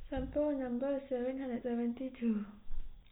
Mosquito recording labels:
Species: no mosquito; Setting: cup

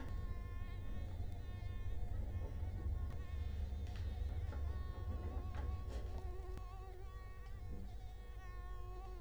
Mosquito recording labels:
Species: Culex quinquefasciatus; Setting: cup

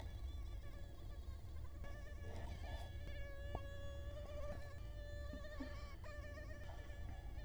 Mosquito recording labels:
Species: Culex quinquefasciatus; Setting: cup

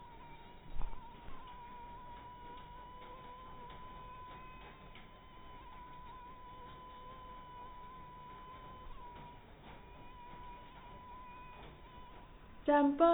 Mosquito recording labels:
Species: mosquito; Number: one; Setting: cup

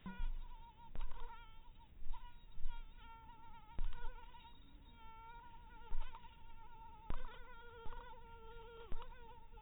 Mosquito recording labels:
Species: mosquito; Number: one; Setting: cup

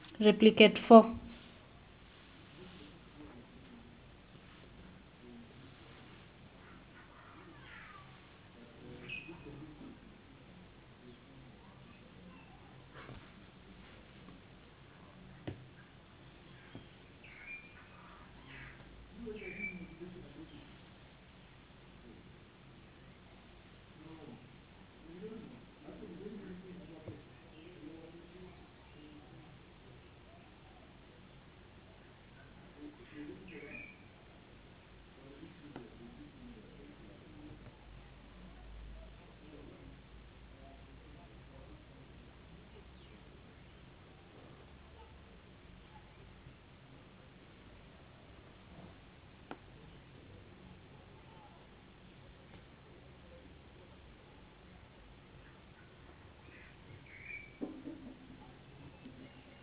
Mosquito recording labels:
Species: no mosquito; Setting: insect culture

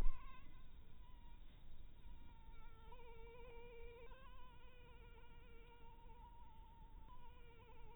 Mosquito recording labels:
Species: Anopheles harrisoni; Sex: female; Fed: blood-fed; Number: one; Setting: cup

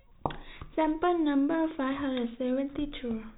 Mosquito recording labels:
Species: no mosquito; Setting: cup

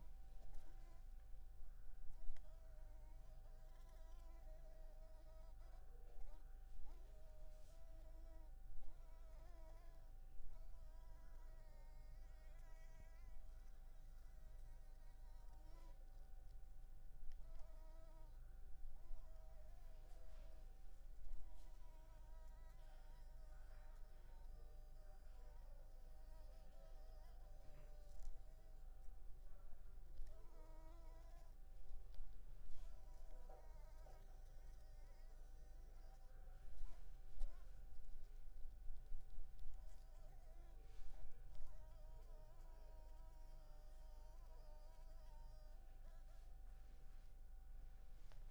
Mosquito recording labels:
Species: Anopheles arabiensis; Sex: female; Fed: unfed; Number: one; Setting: cup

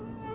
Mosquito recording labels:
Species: Anopheles albimanus; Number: one; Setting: insect culture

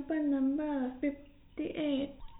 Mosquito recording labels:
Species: no mosquito; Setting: cup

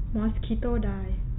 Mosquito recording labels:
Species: mosquito; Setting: cup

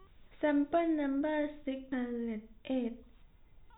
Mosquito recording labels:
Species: no mosquito; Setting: cup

